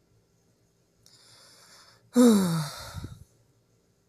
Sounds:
Sigh